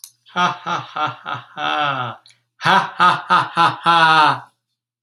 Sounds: Laughter